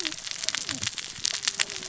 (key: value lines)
label: biophony, cascading saw
recorder: SoundTrap 600 or HydroMoth